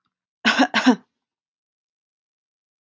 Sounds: Cough